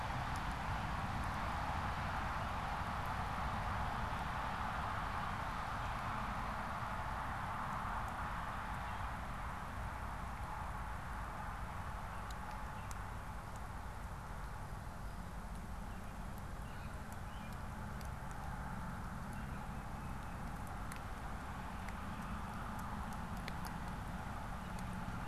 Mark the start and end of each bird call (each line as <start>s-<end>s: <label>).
15.7s-19.6s: American Robin (Turdus migratorius)
19.7s-20.6s: Tufted Titmouse (Baeolophus bicolor)